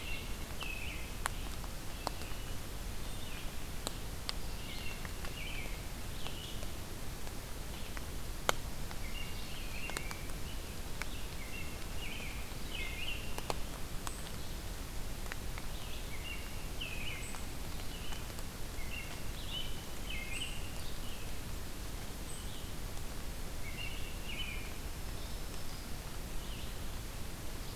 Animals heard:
American Robin (Turdus migratorius), Red-eyed Vireo (Vireo olivaceus), Black-throated Green Warbler (Setophaga virens)

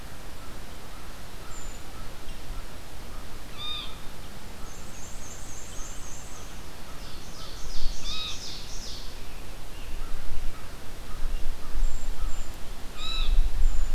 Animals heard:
Blue Jay (Cyanocitta cristata), Brown Creeper (Certhia americana), Ovenbird (Seiurus aurocapilla), Black-and-white Warbler (Mniotilta varia), American Crow (Corvus brachyrhynchos)

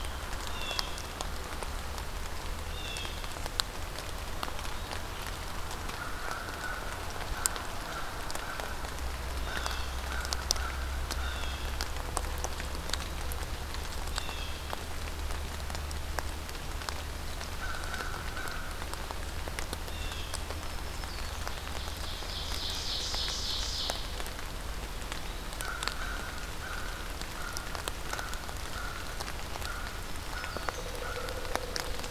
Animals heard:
Blue Jay (Cyanocitta cristata), Black-throated Green Warbler (Setophaga virens), Ovenbird (Seiurus aurocapilla), American Crow (Corvus brachyrhynchos)

